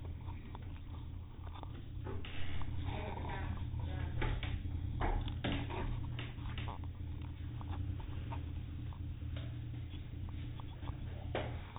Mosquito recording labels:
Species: no mosquito; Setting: cup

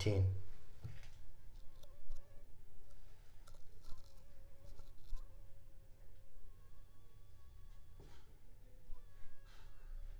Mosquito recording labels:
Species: Anopheles funestus s.l.; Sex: female; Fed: unfed; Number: one; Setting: cup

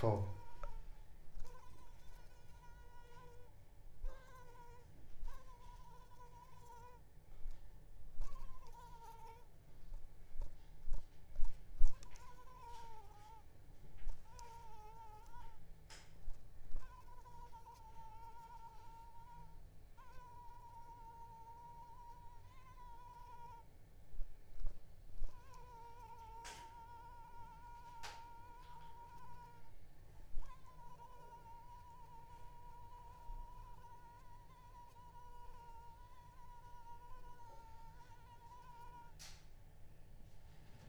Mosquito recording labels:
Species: Anopheles arabiensis; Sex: female; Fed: unfed; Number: one; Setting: cup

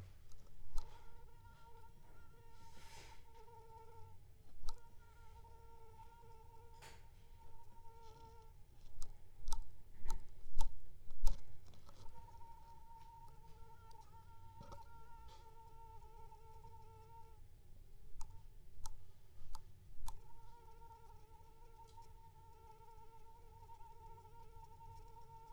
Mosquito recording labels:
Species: Anopheles gambiae s.l.; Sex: female; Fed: unfed; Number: one; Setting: cup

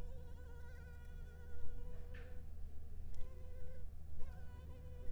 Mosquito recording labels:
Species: Anopheles arabiensis; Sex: female; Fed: unfed; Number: one; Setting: cup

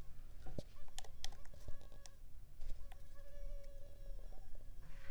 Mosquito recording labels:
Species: Culex pipiens complex; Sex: female; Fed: unfed; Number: one; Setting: cup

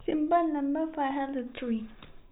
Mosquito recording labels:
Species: no mosquito; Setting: cup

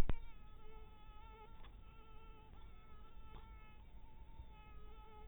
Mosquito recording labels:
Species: mosquito; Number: one; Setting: cup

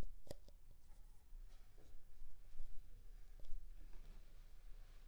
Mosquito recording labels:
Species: Anopheles funestus s.s.; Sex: female; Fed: unfed; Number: one; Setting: cup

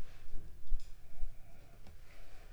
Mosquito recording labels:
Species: Anopheles funestus s.l.; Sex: female; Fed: unfed; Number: one; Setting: cup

